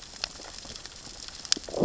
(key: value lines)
label: biophony, growl
recorder: SoundTrap 600 or HydroMoth